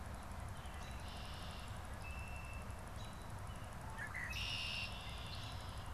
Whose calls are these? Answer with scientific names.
Agelaius phoeniceus, Turdus migratorius